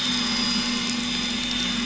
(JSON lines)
{"label": "anthrophony, boat engine", "recorder": "SoundTrap 500"}